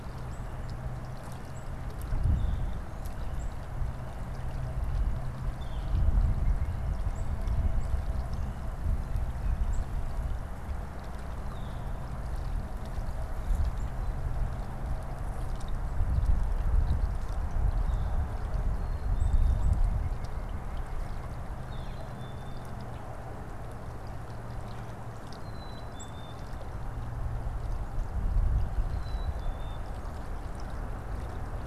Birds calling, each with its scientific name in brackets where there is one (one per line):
Northern Flicker (Colaptes auratus)
Black-capped Chickadee (Poecile atricapillus)
White-breasted Nuthatch (Sitta carolinensis)